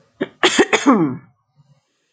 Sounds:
Throat clearing